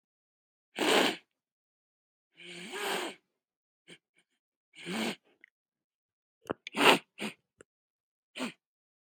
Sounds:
Sniff